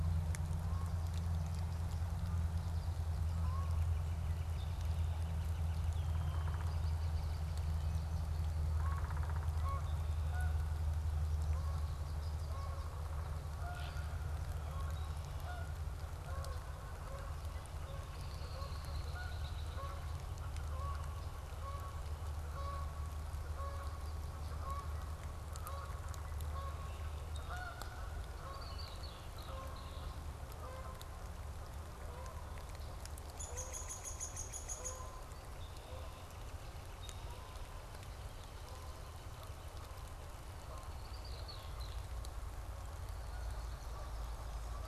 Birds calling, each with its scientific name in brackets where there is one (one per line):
Great Blue Heron (Ardea herodias)
Red-winged Blackbird (Agelaius phoeniceus)
Canada Goose (Branta canadensis)
Swamp Sparrow (Melospiza georgiana)
American Goldfinch (Spinus tristis)
Yellow-rumped Warbler (Setophaga coronata)
Northern Flicker (Colaptes auratus)
Downy Woodpecker (Dryobates pubescens)